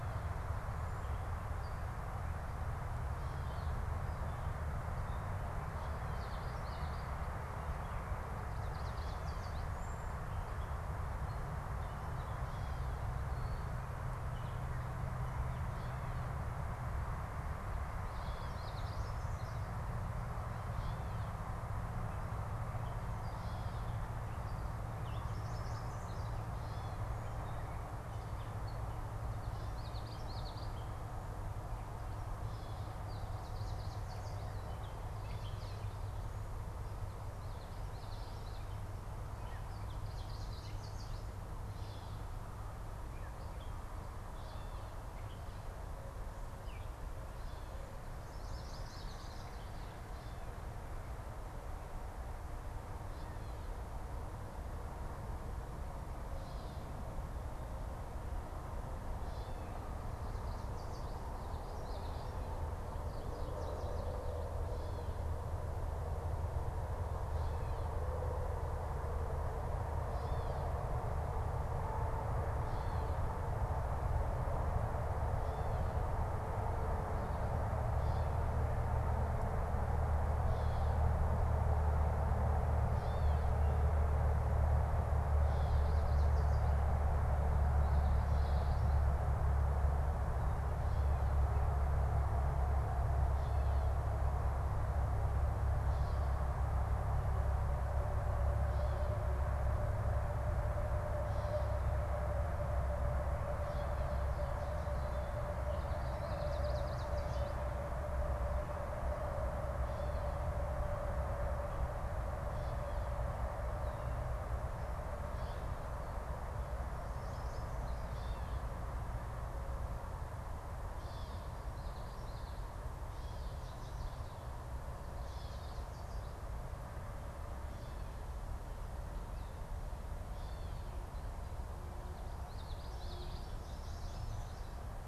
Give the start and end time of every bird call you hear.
[6.00, 7.40] Common Yellowthroat (Geothlypis trichas)
[8.40, 9.70] Yellow Warbler (Setophaga petechia)
[18.10, 19.50] Common Yellowthroat (Geothlypis trichas)
[18.50, 19.70] Yellow Warbler (Setophaga petechia)
[20.80, 29.00] Gray Catbird (Dumetella carolinensis)
[25.10, 26.40] Yellow Warbler (Setophaga petechia)
[29.40, 30.80] Common Yellowthroat (Geothlypis trichas)
[33.20, 34.50] Yellow Warbler (Setophaga petechia)
[37.50, 39.00] Common Yellowthroat (Geothlypis trichas)
[39.70, 41.50] Yellow Warbler (Setophaga petechia)
[41.60, 42.20] Gray Catbird (Dumetella carolinensis)
[43.40, 47.80] Gray Catbird (Dumetella carolinensis)
[48.30, 49.50] Yellow Warbler (Setophaga petechia)
[48.40, 49.60] Common Yellowthroat (Geothlypis trichas)
[60.20, 61.40] Yellow Warbler (Setophaga petechia)
[61.60, 62.40] Common Yellowthroat (Geothlypis trichas)
[62.80, 64.40] unidentified bird
[67.10, 73.20] Gray Catbird (Dumetella carolinensis)
[75.20, 83.70] Gray Catbird (Dumetella carolinensis)
[85.70, 86.70] Yellow Warbler (Setophaga petechia)
[87.60, 89.00] Common Yellowthroat (Geothlypis trichas)
[105.70, 107.10] Common Yellowthroat (Geothlypis trichas)
[106.40, 107.70] Yellow Warbler (Setophaga petechia)
[120.70, 125.60] Gray Catbird (Dumetella carolinensis)
[121.50, 122.90] Common Yellowthroat (Geothlypis trichas)
[123.00, 124.40] unidentified bird
[125.10, 126.30] Yellow Warbler (Setophaga petechia)
[130.10, 131.00] Gray Catbird (Dumetella carolinensis)
[132.30, 133.60] Common Yellowthroat (Geothlypis trichas)
[133.50, 135.00] unidentified bird

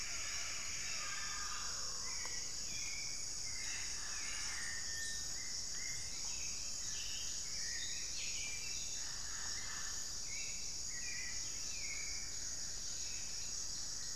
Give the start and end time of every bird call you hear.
[0.00, 1.79] Plumbeous Antbird (Myrmelastes hyperythrus)
[0.00, 3.29] Cinereous Tinamou (Crypturellus cinereus)
[3.39, 14.16] Hauxwell's Thrush (Turdus hauxwelli)
[13.29, 14.16] Plumbeous Antbird (Myrmelastes hyperythrus)

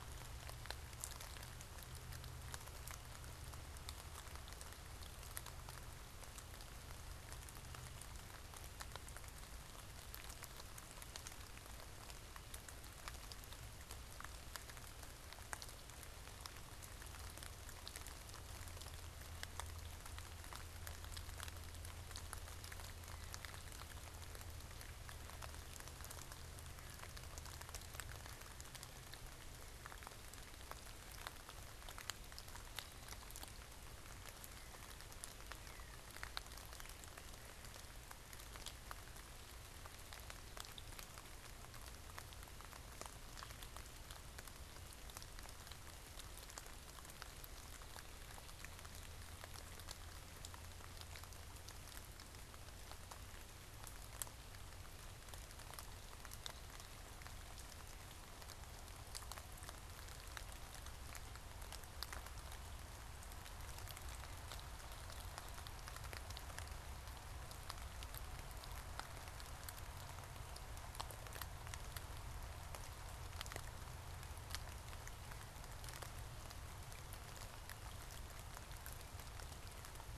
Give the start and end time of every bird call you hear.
[34.11, 37.41] Northern Cardinal (Cardinalis cardinalis)

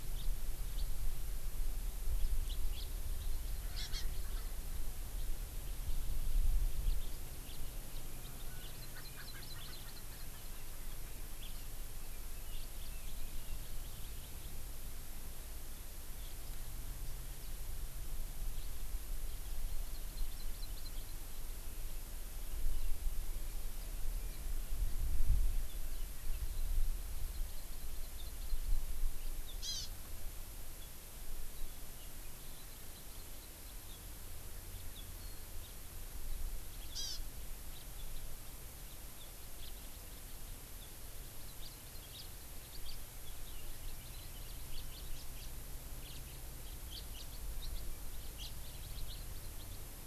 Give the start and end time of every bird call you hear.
[0.16, 0.26] House Finch (Haemorhous mexicanus)
[0.76, 0.86] House Finch (Haemorhous mexicanus)
[2.46, 2.86] House Finch (Haemorhous mexicanus)
[3.76, 4.06] Hawaii Amakihi (Chlorodrepanis virens)
[7.46, 7.56] House Finch (Haemorhous mexicanus)
[8.66, 10.26] Hawaii Amakihi (Chlorodrepanis virens)
[8.96, 10.46] Erckel's Francolin (Pternistis erckelii)
[11.36, 11.46] House Finch (Haemorhous mexicanus)
[12.56, 12.66] House Finch (Haemorhous mexicanus)
[19.66, 20.86] Hawaii Amakihi (Chlorodrepanis virens)
[27.26, 28.76] Hawaii Amakihi (Chlorodrepanis virens)
[29.56, 29.86] Hawaii Amakihi (Chlorodrepanis virens)
[32.36, 33.76] Hawaii Amakihi (Chlorodrepanis virens)
[36.96, 37.16] Hawaii Amakihi (Chlorodrepanis virens)
[37.76, 37.86] House Finch (Haemorhous mexicanus)
[39.56, 39.66] House Finch (Haemorhous mexicanus)
[41.66, 41.76] House Finch (Haemorhous mexicanus)
[42.16, 42.26] House Finch (Haemorhous mexicanus)
[42.86, 42.96] House Finch (Haemorhous mexicanus)
[44.66, 45.46] House Finch (Haemorhous mexicanus)
[45.96, 46.16] House Finch (Haemorhous mexicanus)
[46.86, 47.26] House Finch (Haemorhous mexicanus)
[48.36, 48.46] House Finch (Haemorhous mexicanus)

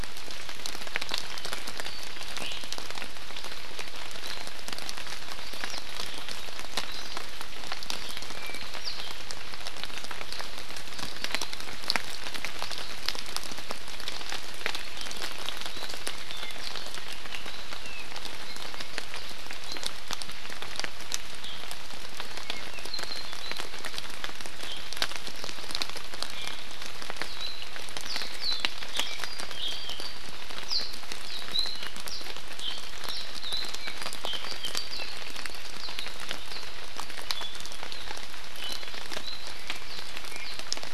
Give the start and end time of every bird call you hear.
[2.42, 2.62] Iiwi (Drepanis coccinea)
[8.32, 8.62] Apapane (Himatione sanguinea)
[22.43, 23.62] Apapane (Himatione sanguinea)
[26.32, 26.52] Iiwi (Drepanis coccinea)
[28.02, 28.62] Warbling White-eye (Zosterops japonicus)
[29.02, 30.23] Apapane (Himatione sanguinea)
[30.62, 30.93] Warbling White-eye (Zosterops japonicus)
[31.23, 31.43] Warbling White-eye (Zosterops japonicus)
[32.12, 32.23] Warbling White-eye (Zosterops japonicus)
[33.02, 33.23] Warbling White-eye (Zosterops japonicus)
[33.52, 35.62] Apapane (Himatione sanguinea)

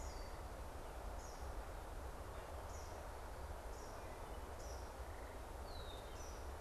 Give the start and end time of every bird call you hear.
[0.00, 6.61] Eastern Kingbird (Tyrannus tyrannus)
[3.82, 4.62] Wood Thrush (Hylocichla mustelina)
[5.52, 6.22] Red-winged Blackbird (Agelaius phoeniceus)

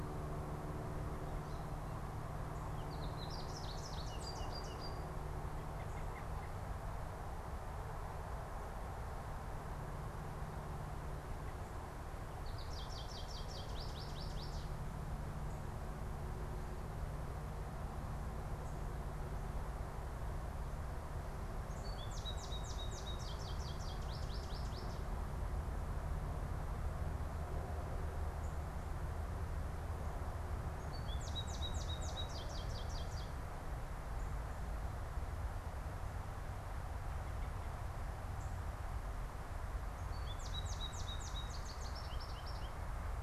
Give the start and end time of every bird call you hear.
[0.00, 5.03] American Goldfinch (Spinus tristis)
[5.63, 6.63] American Robin (Turdus migratorius)
[12.33, 43.23] American Goldfinch (Spinus tristis)

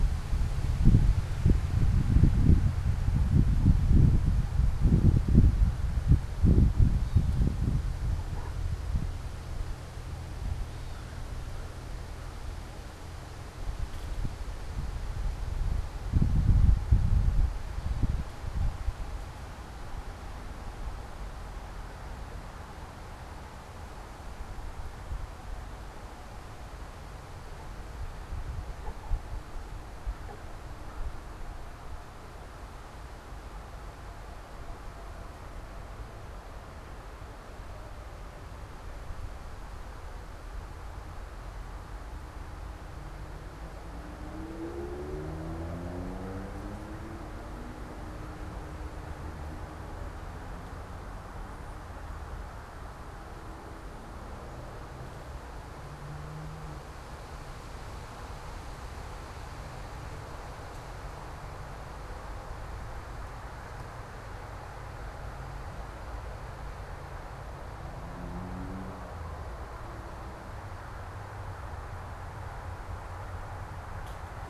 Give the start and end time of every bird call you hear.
[6.85, 7.65] Gray Catbird (Dumetella carolinensis)
[10.45, 11.35] Gray Catbird (Dumetella carolinensis)

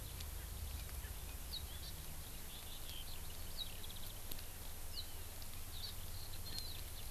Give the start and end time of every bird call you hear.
[0.00, 7.11] Eurasian Skylark (Alauda arvensis)
[5.75, 5.95] Hawaii Amakihi (Chlorodrepanis virens)

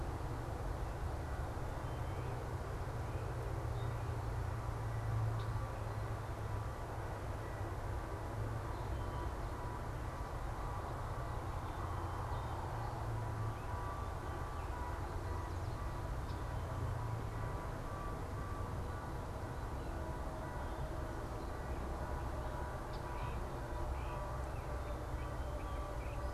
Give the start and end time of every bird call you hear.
[22.90, 26.30] Great Crested Flycatcher (Myiarchus crinitus)

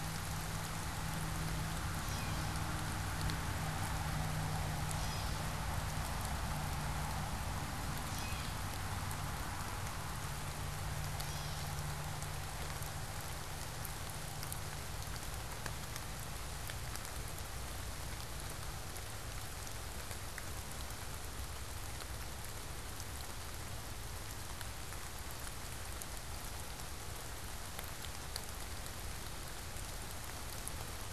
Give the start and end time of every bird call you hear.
[1.66, 9.16] Gray Catbird (Dumetella carolinensis)
[11.06, 11.86] Gray Catbird (Dumetella carolinensis)

